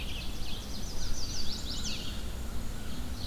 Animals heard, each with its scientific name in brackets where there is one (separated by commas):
Ovenbird (Seiurus aurocapilla), Black-and-white Warbler (Mniotilta varia), Chestnut-sided Warbler (Setophaga pensylvanica), Red-eyed Vireo (Vireo olivaceus), American Crow (Corvus brachyrhynchos)